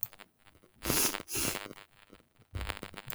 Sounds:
Sneeze